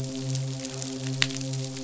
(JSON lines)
{"label": "biophony, midshipman", "recorder": "SoundTrap 500"}